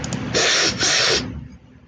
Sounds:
Sniff